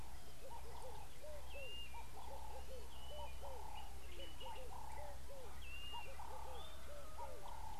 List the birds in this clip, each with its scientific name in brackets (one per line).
Blue-naped Mousebird (Urocolius macrourus)
Red-eyed Dove (Streptopelia semitorquata)
Ring-necked Dove (Streptopelia capicola)